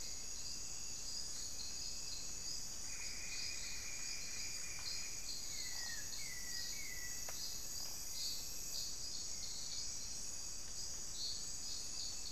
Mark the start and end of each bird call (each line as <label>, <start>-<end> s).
Hauxwell's Thrush (Turdus hauxwelli), 0.0-12.3 s
unidentified bird, 2.7-7.9 s